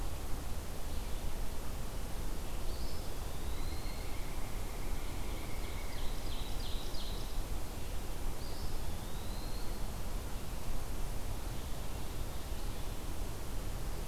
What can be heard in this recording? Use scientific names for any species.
Contopus virens, Colaptes auratus, Seiurus aurocapilla